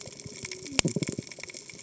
{"label": "biophony, cascading saw", "recorder": "HydroMoth"}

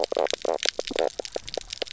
{"label": "biophony, knock croak", "recorder": "SoundTrap 300"}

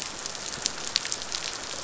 {"label": "biophony, rattle response", "recorder": "SoundTrap 500"}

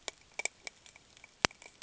{"label": "ambient", "recorder": "HydroMoth"}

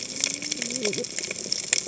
{"label": "biophony, cascading saw", "recorder": "HydroMoth"}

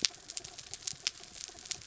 {"label": "anthrophony, mechanical", "recorder": "SoundTrap 300"}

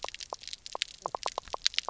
{"label": "biophony, knock croak", "recorder": "SoundTrap 300"}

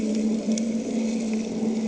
{"label": "anthrophony, boat engine", "recorder": "HydroMoth"}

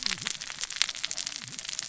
{"label": "biophony, cascading saw", "recorder": "SoundTrap 600 or HydroMoth"}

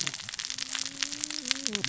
{"label": "biophony, cascading saw", "recorder": "SoundTrap 600 or HydroMoth"}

